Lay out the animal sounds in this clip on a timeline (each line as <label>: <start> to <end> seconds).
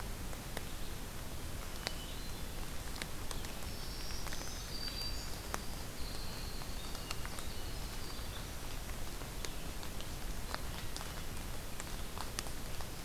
Red-eyed Vireo (Vireo olivaceus): 0.0 to 9.7 seconds
Hermit Thrush (Catharus guttatus): 1.7 to 2.6 seconds
Black-throated Green Warbler (Setophaga virens): 3.7 to 5.4 seconds
Winter Wren (Troglodytes hiemalis): 4.5 to 8.8 seconds
Hermit Thrush (Catharus guttatus): 10.7 to 11.9 seconds